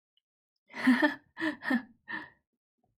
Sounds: Laughter